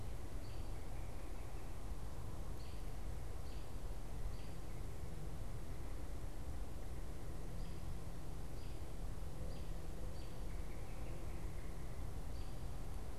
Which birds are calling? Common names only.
American Robin